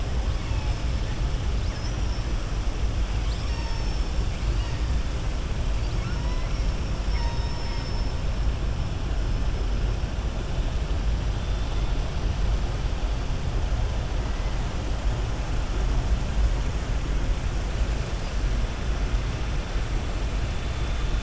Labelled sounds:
5.7	6.5	killer whale, southern resident, 0.96 to 5.0 kHz

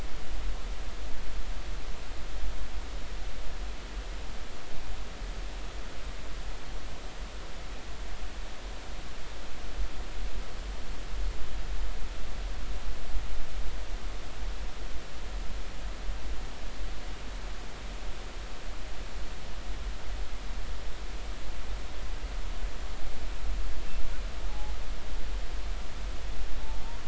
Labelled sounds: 24.5	24.8	killer whale, northern resident, 0.80 to 0.99 kHz

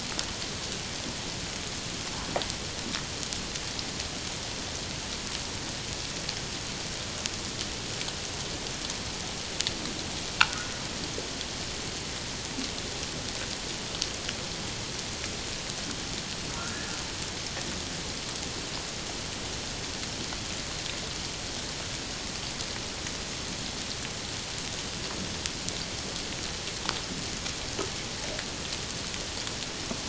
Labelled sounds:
10.4	10.7	humpback whale, 1.2 to 1.6 kHz
16.6	17.0	humpback whale, 1.3 to 1.9 kHz

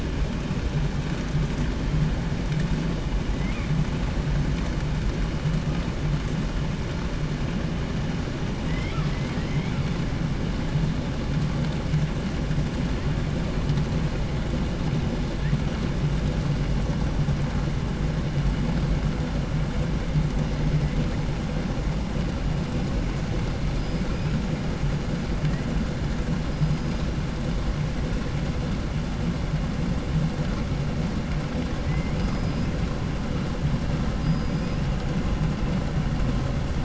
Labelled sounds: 3.3	3.9	killer whale, 1.4 to 3.0 kHz
8.6	10.0	killer whale, southern resident, 0.66 to 6.0 kHz
14.7	15.6	killer whale, 1.3 to 8.0 kHz
23.7	24.5	killer whale, 1.2 to 5.5 kHz
25.4	25.7	killer whale, 1.2 to 2.6 kHz
26.5	27.1	killer whale, 1.6 to 5.6 kHz
31.8	32.8	killer whale, southern resident, 1.1 to 6.7 kHz
34.2	35.0	killer whale, southern resident, 1.4 to 5.8 kHz

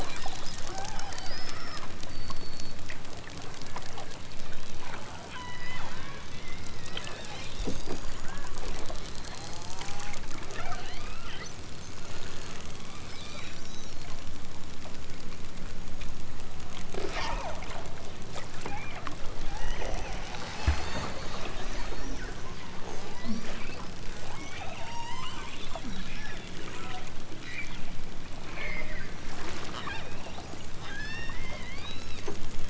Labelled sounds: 0.6	2.0	killer whale, southern Alaska resident, 0.28 to 5.8 kHz
5.3	5.9	killer whale, southern Alaska resident, 0.64 to 6.8 kHz
6.3	7.1	killer whale, southern Alaska resident, 1.7 to 5.9 kHz
8.1	8.8	killer whale, southern Alaska resident, 0.55 to 2.3 kHz
9.3	11.4	killer whale, southern Alaska resident, 0.28 to 6.0 kHz
12.5	13.9	killer whale, southern Alaska resident, 0.83 to 6.8 kHz
16.9	17.7	killer whale, southern Alaska resident, 0.28 to 6.5 kHz
18.6	19.0	killer whale, southern Alaska resident, 0.55 to 2.8 kHz
19.4	21.2	killer whale, southern Alaska resident, 0.18 to 6.9 kHz
23.0	23.5	killer whale, southern Alaska resident, 0.60 to 6.4 kHz
24.4	25.5	killer whale, southern Alaska resident, 0.41 to 6.3 kHz
29.3	30.2	killer whale, southern Alaska resident, 0.28 to 6.2 kHz
30.8	32.2	killer whale, southern Alaska resident, 0.92 to 6.3 kHz

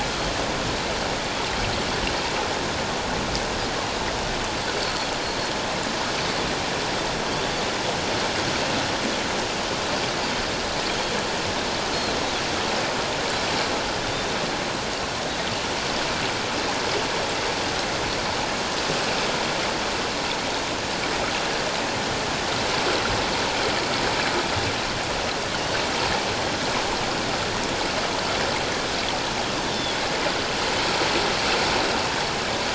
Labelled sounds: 29.6	30.0	Pacific white-sided dolphin, 3.2 to 3.7 kHz

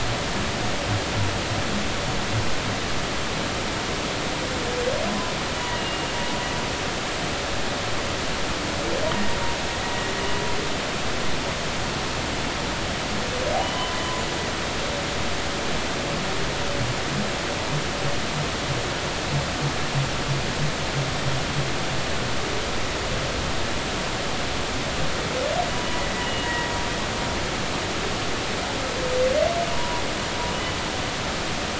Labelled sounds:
5.7	6.1	humpback whale, 2.8 to 2.9 kHz
13.6	14.3	humpback whale, 2.9 to 7.1 kHz
25.9	26.7	humpback whale, 1.9 to 2.9 kHz
29.7	30.0	humpback whale, 0.93 to 1.1 kHz

